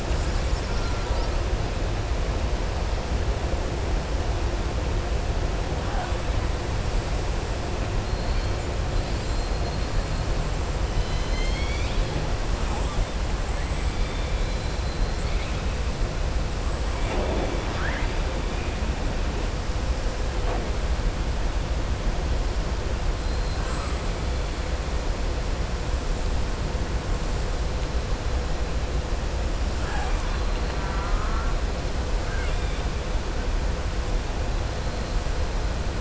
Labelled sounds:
0.7	1.2	killer whale, southern resident, 0.90 to 2.1 kHz
13.9	14.7	killer whale, southern resident, 3.4 to 4.2 kHz
23.5	24.6	killer whale, southern resident, 6.8 to 8.0 kHz
29.7	30.7	killer whale, southern resident, 0.74 to 4.1 kHz
32.2	32.9	killer whale, southern resident, 1.4 to 3.7 kHz

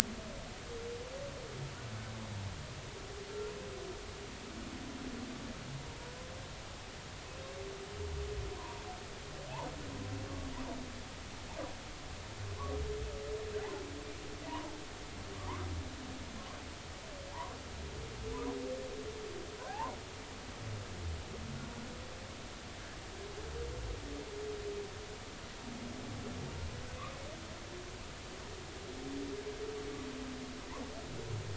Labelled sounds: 8.6	8.9	humpback whale, 0.86 to 1.1 kHz
14.5	14.7	humpback whale, 0.83 to 1.1 kHz
15.4	15.7	humpback whale, 0.80 to 1.4 kHz
19.6	20.0	humpback whale, 0.80 to 1.9 kHz

